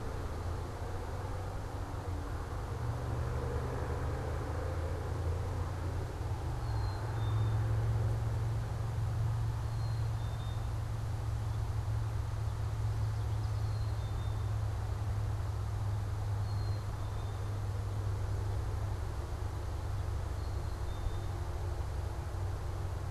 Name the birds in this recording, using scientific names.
Poecile atricapillus, Geothlypis trichas